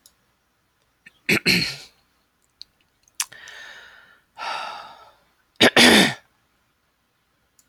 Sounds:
Throat clearing